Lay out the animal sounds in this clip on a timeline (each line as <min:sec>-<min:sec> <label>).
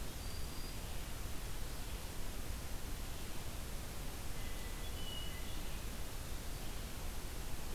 0:00.0-0:00.9 Black-throated Green Warbler (Setophaga virens)
0:04.1-0:05.9 Hermit Thrush (Catharus guttatus)